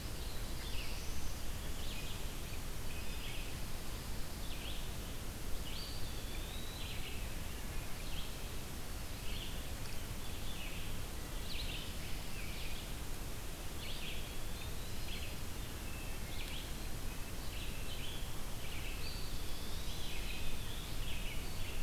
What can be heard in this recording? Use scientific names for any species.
Vireo olivaceus, Setophaga caerulescens, Contopus virens, Hylocichla mustelina